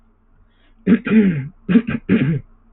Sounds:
Throat clearing